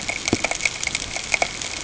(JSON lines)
{"label": "ambient", "recorder": "HydroMoth"}